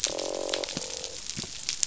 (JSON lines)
{"label": "biophony, croak", "recorder": "SoundTrap 500"}